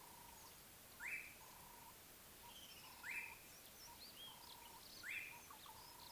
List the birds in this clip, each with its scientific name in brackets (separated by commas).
Slate-colored Boubou (Laniarius funebris)